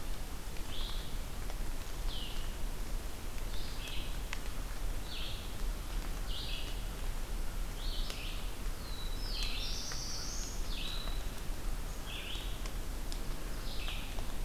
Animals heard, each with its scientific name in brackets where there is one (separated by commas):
Red-eyed Vireo (Vireo olivaceus), Black-throated Blue Warbler (Setophaga caerulescens)